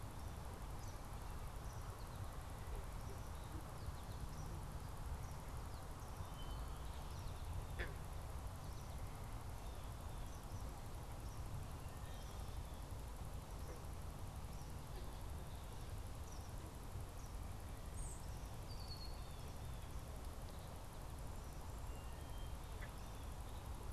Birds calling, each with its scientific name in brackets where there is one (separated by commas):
Eastern Kingbird (Tyrannus tyrannus), unidentified bird, Red-winged Blackbird (Agelaius phoeniceus)